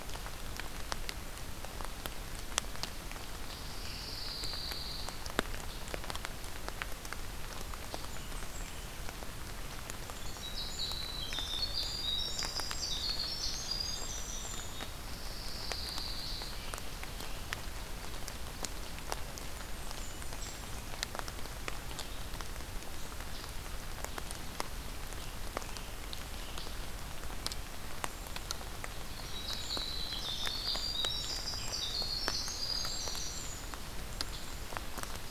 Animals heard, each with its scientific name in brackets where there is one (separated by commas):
Winter Wren (Troglodytes hiemalis), Pine Warbler (Setophaga pinus), Blackburnian Warbler (Setophaga fusca), Black-capped Chickadee (Poecile atricapillus)